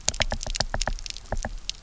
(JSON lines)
{"label": "biophony, knock", "recorder": "SoundTrap 300"}